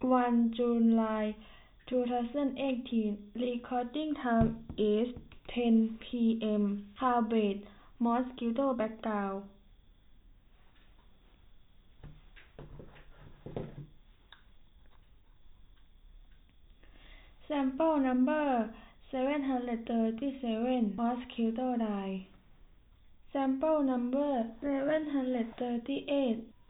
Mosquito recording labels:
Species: no mosquito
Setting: cup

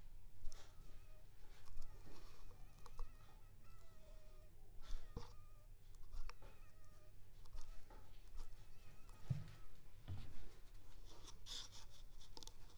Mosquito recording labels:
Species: Anopheles funestus s.s.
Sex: female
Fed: unfed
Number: one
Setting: cup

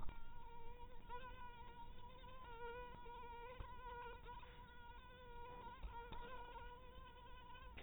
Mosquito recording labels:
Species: mosquito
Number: one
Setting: cup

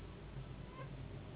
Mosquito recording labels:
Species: Anopheles gambiae s.s.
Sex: female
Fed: unfed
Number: one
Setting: insect culture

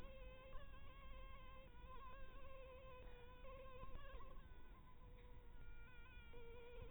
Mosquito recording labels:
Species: Anopheles harrisoni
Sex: female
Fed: blood-fed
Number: one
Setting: cup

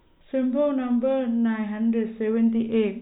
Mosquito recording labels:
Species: no mosquito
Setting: cup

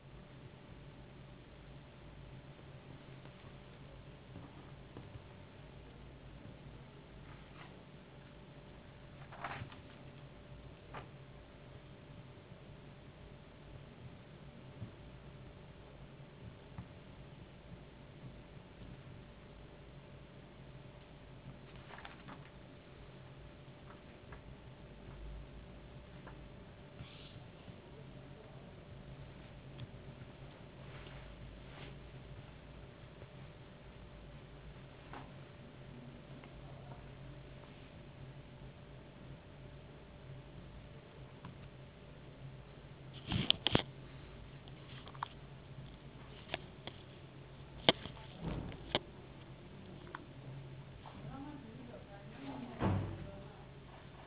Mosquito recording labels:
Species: no mosquito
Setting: insect culture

